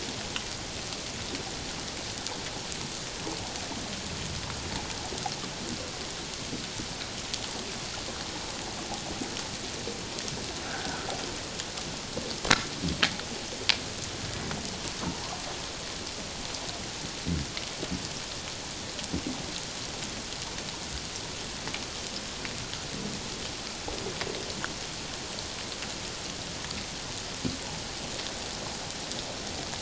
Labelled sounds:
10.6	11.1	humpback whale, 1.2 to 1.7 kHz

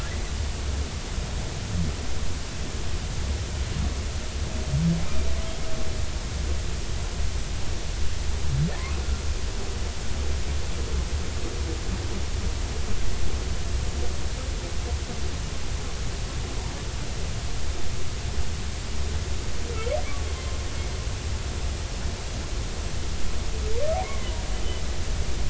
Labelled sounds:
5.0	5.3	humpback whale, 2.3 to 2.5 kHz
24.0	24.3	humpback whale, 2.0 to 2.3 kHz

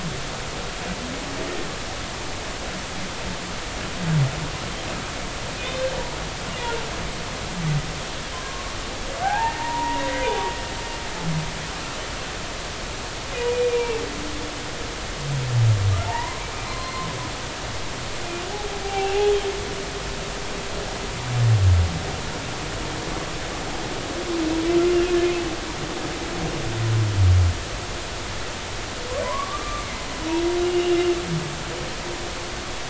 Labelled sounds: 8.3	8.8	humpback whale, 0.99 to 1.2 kHz
9.2	10.3	humpback whale, 0.80 to 2.0 kHz
13.7	14.0	humpback whale, 2.2 to 2.4 kHz
16.0	17.1	humpback whale, 0.80 to 4.2 kHz
18.8	19.3	humpback whale, 0.80 to 2.9 kHz
29.2	29.9	humpback whale, 0.93 to 1.3 kHz
30.6	31.2	humpback whale, 2.7 to 3.0 kHz

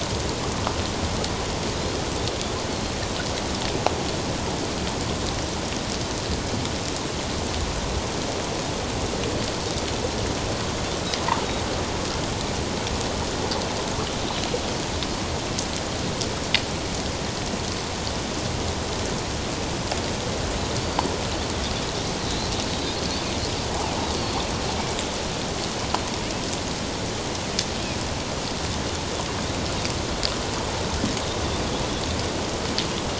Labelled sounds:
20.8	21.1	Pacific white-sided dolphin, 4.4 to 4.7 kHz

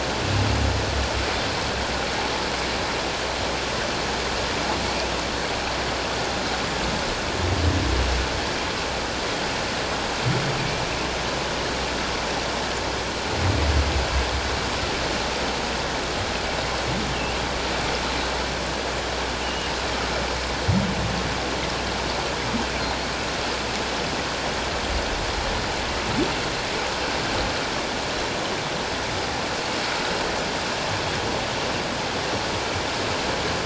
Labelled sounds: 19.4	19.7	humpback whale, 2.8 to 3.0 kHz

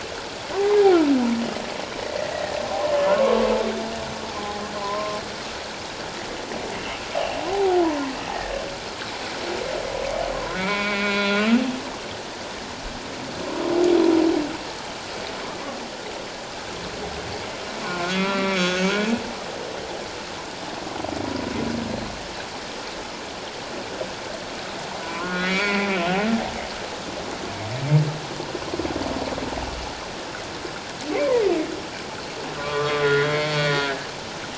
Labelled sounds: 2.3	2.6	humpback whale, 1.8 to 2.0 kHz
3.1	3.5	humpback whale, 0.88 to 1.2 kHz
4.7	5.2	humpback whale, 0.94 to 1.1 kHz
7.5	7.8	humpback whale, 0.78 to 0.91 kHz
10.6	11.5	humpback whale, 0.91 to 4.1 kHz
17.8	19.0	humpback whale, 0.97 to 4.0 kHz
25.0	25.9	humpback whale, 0.94 to 3.5 kHz
32.6	33.9	humpback whale, 0.97 to 4.6 kHz

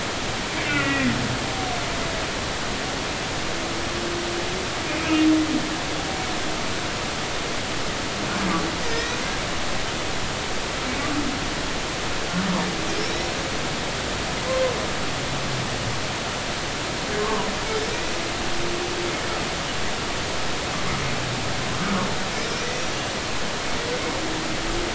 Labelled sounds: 0.5	1.1	humpback whale, 1.3 to 2.8 kHz
8.8	9.1	humpback whale, 1.8 to 2.0 kHz
17.2	17.5	humpback whale, 0.93 to 1.2 kHz
22.4	22.8	humpback whale, 4.9 to 6.0 kHz

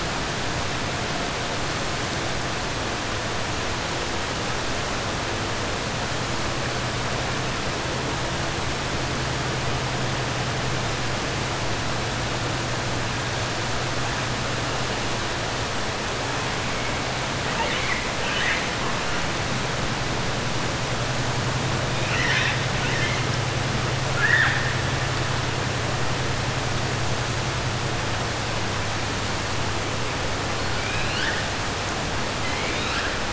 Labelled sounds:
17.5	18.1	killer whale, 0.59 to 4.3 kHz
22.7	23.2	killer whale, 1.5 to 4.1 kHz
24.1	24.7	killer whale, 0.81 to 3.7 kHz

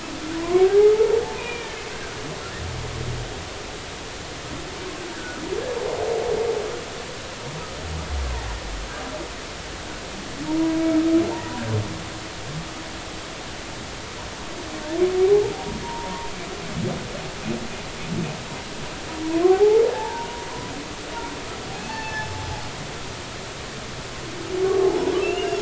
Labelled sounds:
0.4	0.9	humpback whale, 0.80 to 1.1 kHz
1.4	1.8	humpback whale, 1.7 to 2.6 kHz
5.1	5.4	humpback whale, 1.4 to 1.8 kHz
8.2	8.5	humpback whale, 0.80 to 1.2 kHz
10.5	10.8	humpback whale, 0.86 to 1.0 kHz
15.2	16.3	humpback whale, 0.80 to 1.1 kHz
19.4	20.3	humpback whale, 0.80 to 0.99 kHz
21.7	22.4	humpback whale, 0.83 to 5.3 kHz
24.6	25.5	humpback whale, 1.0 to 2.9 kHz

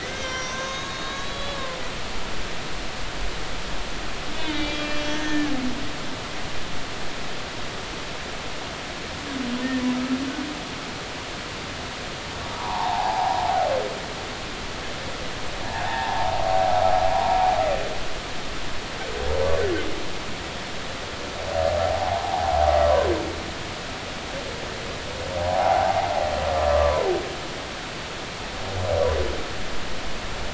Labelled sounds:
0.0	1.6	humpback whale, 0.99 to 6.6 kHz
4.5	5.5	humpback whale, 1.6 to 3.7 kHz
12.6	13.5	humpback whale, 0.80 to 1.2 kHz
15.7	16.4	humpback whale, 0.80 to 1.0 kHz
21.8	22.6	humpback whale, 0.80 to 1.1 kHz
25.4	27.0	humpback whale, 0.80 to 1.2 kHz

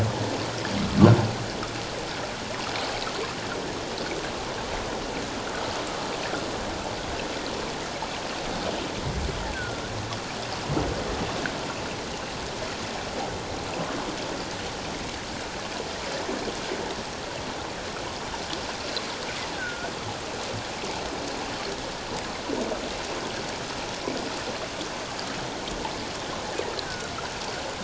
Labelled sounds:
9.4	9.9	killer whale, offshore, call OFF17, 1.3 to 2.0 kHz
19.6	19.9	killer whale, offshore, call OFF17, 1.3 to 1.6 kHz
26.8	27.1	killer whale, offshore, call OFF17, 1.3 to 1.7 kHz

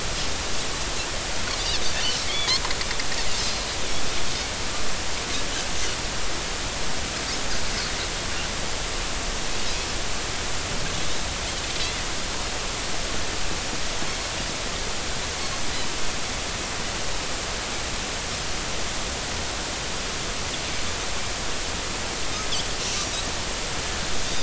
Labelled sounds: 1.9	2.5	Pacific white-sided dolphin, 2.1 to 3.5 kHz

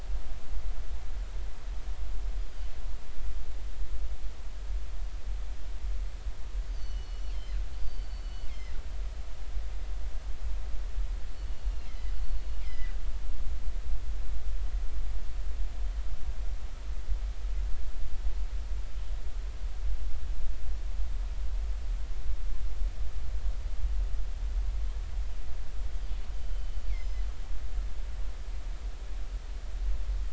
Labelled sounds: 2.4	2.7	killer whale, northern resident, G clan, 4.5 to 5.0 kHz
6.7	8.8	killer whale, northern resident, G clan, GG subclan, call N23ii, 1.9 to 6.4 kHz
11.3	12.9	killer whale, northern resident, G clan, GG subclan, call N23ii, 1.8 to 4.6 kHz
26.4	27.2	killer whale, northern resident, G clan, GG subclan, call N23ii, 3.0 to 5.3 kHz

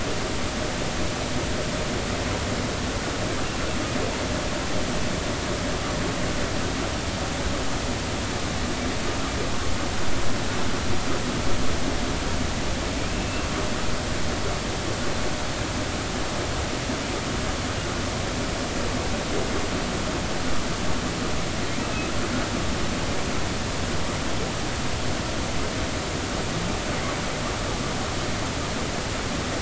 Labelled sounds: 13.0	13.5	humpback whale, 2.3 to 2.8 kHz

